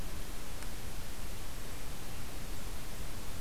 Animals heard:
forest ambience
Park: Hubbard Brook Experimental Forest